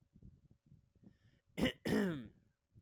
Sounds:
Throat clearing